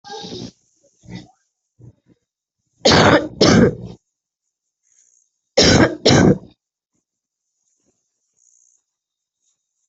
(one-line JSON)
{"expert_labels": [{"quality": "poor", "cough_type": "unknown", "dyspnea": false, "wheezing": false, "stridor": false, "choking": false, "congestion": false, "nothing": true, "diagnosis": "lower respiratory tract infection", "severity": "mild"}], "age": 31, "gender": "female", "respiratory_condition": false, "fever_muscle_pain": false, "status": "symptomatic"}